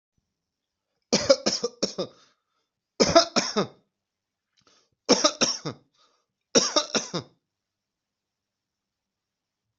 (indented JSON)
{
  "expert_labels": [
    {
      "quality": "good",
      "cough_type": "dry",
      "dyspnea": false,
      "wheezing": false,
      "stridor": false,
      "choking": false,
      "congestion": false,
      "nothing": true,
      "diagnosis": "upper respiratory tract infection",
      "severity": "mild"
    }
  ],
  "age": 41,
  "gender": "male",
  "respiratory_condition": true,
  "fever_muscle_pain": false,
  "status": "symptomatic"
}